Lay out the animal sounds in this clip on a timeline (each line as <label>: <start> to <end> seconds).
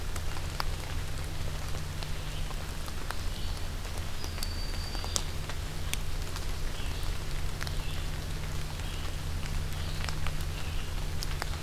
Red-eyed Vireo (Vireo olivaceus): 0.0 to 11.6 seconds
Broad-winged Hawk (Buteo platypterus): 4.1 to 5.3 seconds